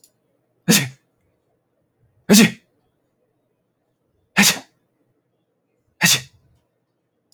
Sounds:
Sneeze